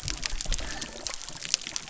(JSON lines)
{"label": "biophony", "recorder": "SoundTrap 300"}